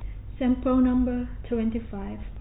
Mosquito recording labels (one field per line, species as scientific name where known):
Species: no mosquito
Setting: cup